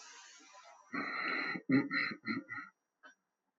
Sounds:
Throat clearing